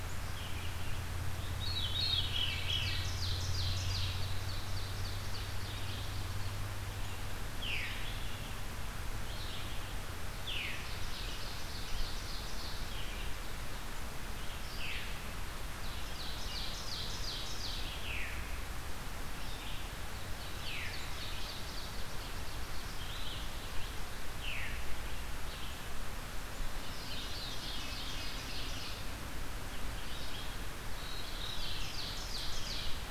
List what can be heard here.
Red-eyed Vireo, Veery, Ovenbird